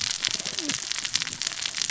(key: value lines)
label: biophony, cascading saw
recorder: SoundTrap 600 or HydroMoth